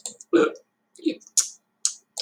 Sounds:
Throat clearing